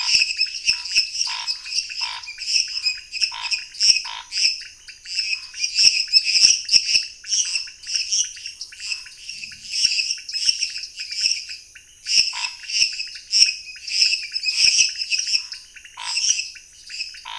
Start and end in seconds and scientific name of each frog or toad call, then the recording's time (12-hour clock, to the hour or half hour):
0.0	17.3	Dendropsophus minutus
0.0	17.3	Dendropsophus nanus
0.0	17.3	Leptodactylus podicipinus
0.6	9.2	Scinax fuscovarius
12.3	12.5	Scinax fuscovarius
14.5	17.3	Scinax fuscovarius
~9pm